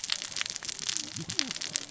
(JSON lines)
{"label": "biophony, cascading saw", "recorder": "SoundTrap 600 or HydroMoth"}